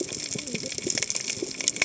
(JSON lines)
{"label": "biophony, cascading saw", "recorder": "HydroMoth"}